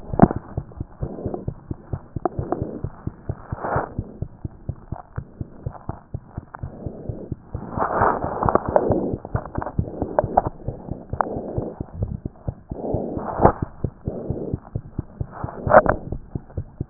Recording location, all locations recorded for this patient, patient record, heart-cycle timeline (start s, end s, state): mitral valve (MV)
aortic valve (AV)+mitral valve (MV)+mitral valve (MV)
#Age: Child
#Sex: Male
#Height: 79.0 cm
#Weight: 12.7 kg
#Pregnancy status: False
#Murmur: Absent
#Murmur locations: nan
#Most audible location: nan
#Systolic murmur timing: nan
#Systolic murmur shape: nan
#Systolic murmur grading: nan
#Systolic murmur pitch: nan
#Systolic murmur quality: nan
#Diastolic murmur timing: nan
#Diastolic murmur shape: nan
#Diastolic murmur grading: nan
#Diastolic murmur pitch: nan
#Diastolic murmur quality: nan
#Outcome: Normal
#Campaign: 2014 screening campaign
0.00	4.12	unannotated
4.12	4.22	diastole
4.22	4.30	S1
4.30	4.44	systole
4.44	4.52	S2
4.52	4.68	diastole
4.68	4.76	S1
4.76	4.90	systole
4.90	4.98	S2
4.98	5.18	diastole
5.18	5.26	S1
5.26	5.40	systole
5.40	5.48	S2
5.48	5.66	diastole
5.66	5.74	S1
5.74	5.88	systole
5.88	5.96	S2
5.96	6.14	diastole
6.14	6.22	S1
6.22	6.36	systole
6.36	6.44	S2
6.44	6.62	diastole
6.62	16.90	unannotated